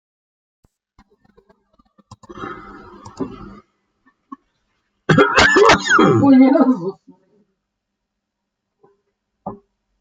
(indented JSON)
{
  "expert_labels": [
    {
      "quality": "good",
      "cough_type": "dry",
      "dyspnea": false,
      "wheezing": false,
      "stridor": false,
      "choking": false,
      "congestion": false,
      "nothing": true,
      "diagnosis": "healthy cough",
      "severity": "pseudocough/healthy cough"
    }
  ],
  "age": 58,
  "gender": "male",
  "respiratory_condition": false,
  "fever_muscle_pain": false,
  "status": "symptomatic"
}